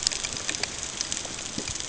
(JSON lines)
{"label": "ambient", "recorder": "HydroMoth"}